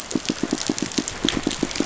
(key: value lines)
label: biophony, pulse
recorder: SoundTrap 500